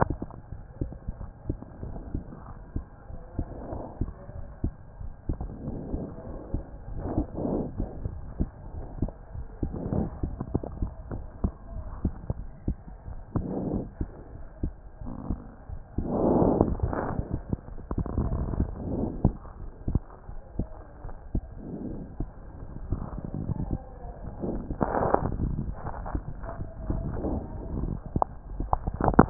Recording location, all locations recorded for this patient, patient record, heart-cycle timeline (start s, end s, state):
aortic valve (AV)
aortic valve (AV)+pulmonary valve (PV)+tricuspid valve (TV)+mitral valve (MV)
#Age: Child
#Sex: Male
#Height: 133.0 cm
#Weight: 23.3 kg
#Pregnancy status: False
#Murmur: Absent
#Murmur locations: nan
#Most audible location: nan
#Systolic murmur timing: nan
#Systolic murmur shape: nan
#Systolic murmur grading: nan
#Systolic murmur pitch: nan
#Systolic murmur quality: nan
#Diastolic murmur timing: nan
#Diastolic murmur shape: nan
#Diastolic murmur grading: nan
#Diastolic murmur pitch: nan
#Diastolic murmur quality: nan
#Outcome: Normal
#Campaign: 2014 screening campaign
0.00	1.13	unannotated
1.13	1.20	diastole
1.20	1.28	S1
1.28	1.48	systole
1.48	1.56	S2
1.56	1.83	diastole
1.83	1.96	S1
1.96	2.12	systole
2.12	2.22	S2
2.22	2.48	diastole
2.48	2.62	S1
2.62	2.76	systole
2.76	2.85	S2
2.85	3.09	diastole
3.09	3.23	S1
3.23	3.38	systole
3.38	3.48	S2
3.48	3.74	diastole
3.74	3.87	S1
3.87	4.01	systole
4.01	4.09	S2
4.09	4.36	diastole
4.36	4.48	S1
4.48	4.64	systole
4.64	4.73	S2
4.73	5.01	diastole
5.01	29.30	unannotated